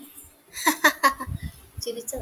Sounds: Laughter